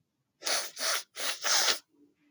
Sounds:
Sniff